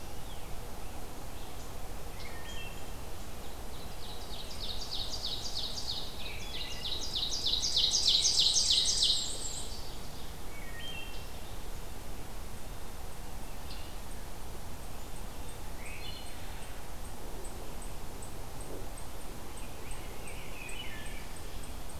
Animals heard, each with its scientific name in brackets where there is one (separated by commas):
Wood Thrush (Hylocichla mustelina), Rose-breasted Grosbeak (Pheucticus ludovicianus), unknown mammal, Black-and-white Warbler (Mniotilta varia), Ovenbird (Seiurus aurocapilla)